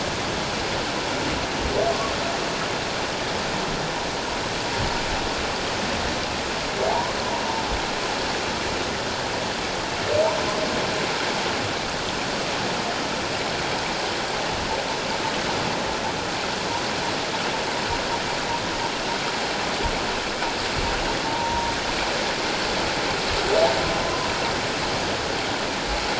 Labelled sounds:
6.9	7.2	humpback whale, 0.78 to 1.1 kHz
21.2	21.7	humpback whale, 0.88 to 1.0 kHz

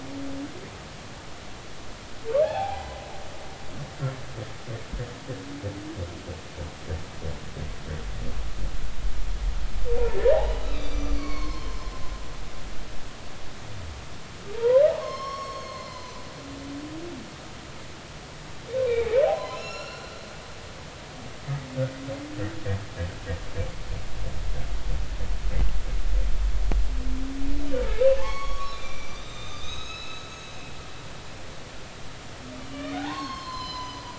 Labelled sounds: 2.4	3.0	humpback whale, 0.80 to 1.1 kHz
9.9	11.8	humpback whale, 0.86 to 6.1 kHz
14.6	16.2	humpback whale, 0.90 to 6.6 kHz
18.9	20.1	humpback whale, 0.80 to 7.1 kHz
28.2	30.3	humpback whale, 1.0 to 6.6 kHz
32.6	34.1	humpback whale, 0.80 to 7.2 kHz

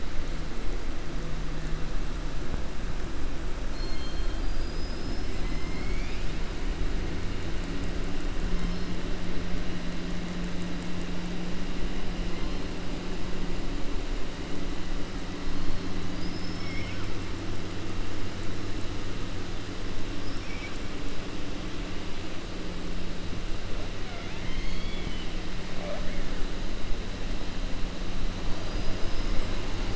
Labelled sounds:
20.3	20.8	killer whale, southern resident, 1.6 to 2.7 kHz
24.0	25.3	killer whale, southern resident, 0.71 to 4.5 kHz

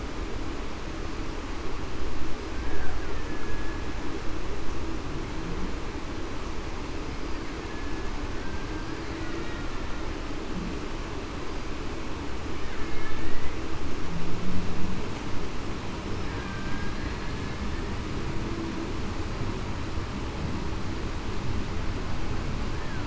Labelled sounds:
3.4	3.8	killer whale, Bigg's (transient), 1.66 to 1.73 kHz
7.7	8.1	killer whale, Bigg's (transient), 1.66 to 1.73 kHz
13.0	13.5	killer whale, Bigg's (transient), 1.7 to 2.0 kHz
16.4	17.0	killer whale, Bigg's (transient), 1.5 to 1.8 kHz

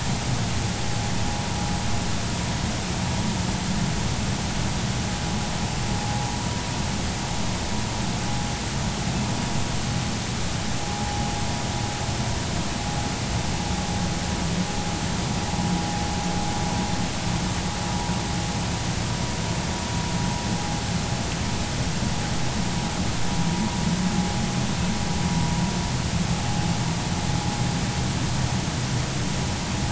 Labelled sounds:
10.8	11.3	vessel noise, 0.80 to 1.0 kHz

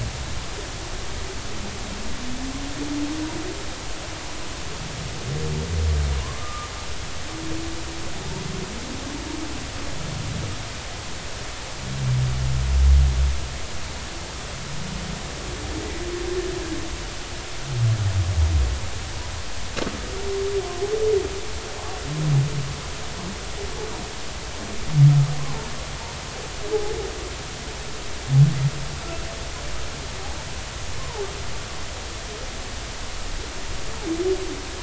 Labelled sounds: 6.4	6.7	humpback whale, 1.2 to 1.3 kHz
25.4	25.7	humpback whale, 0.80 to 1.2 kHz
31.0	31.2	humpback whale, 0.80 to 1.2 kHz

